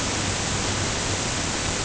{"label": "ambient", "recorder": "HydroMoth"}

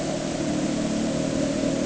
{"label": "anthrophony, boat engine", "recorder": "HydroMoth"}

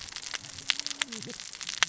{"label": "biophony, cascading saw", "recorder": "SoundTrap 600 or HydroMoth"}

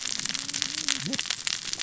{"label": "biophony, cascading saw", "recorder": "SoundTrap 600 or HydroMoth"}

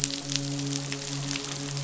{"label": "biophony, midshipman", "recorder": "SoundTrap 500"}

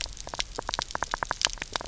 {"label": "biophony, knock", "recorder": "SoundTrap 300"}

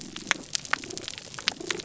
{"label": "biophony", "recorder": "SoundTrap 300"}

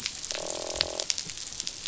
{"label": "biophony, croak", "recorder": "SoundTrap 500"}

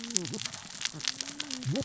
{"label": "biophony, cascading saw", "recorder": "SoundTrap 600 or HydroMoth"}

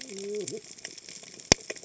{"label": "biophony, cascading saw", "recorder": "HydroMoth"}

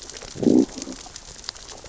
{"label": "biophony, growl", "recorder": "SoundTrap 600 or HydroMoth"}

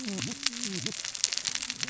{"label": "biophony, cascading saw", "recorder": "SoundTrap 600 or HydroMoth"}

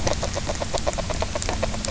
{"label": "biophony, grazing", "recorder": "SoundTrap 300"}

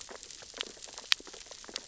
{"label": "biophony, sea urchins (Echinidae)", "recorder": "SoundTrap 600 or HydroMoth"}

